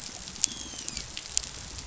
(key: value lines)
label: biophony, dolphin
recorder: SoundTrap 500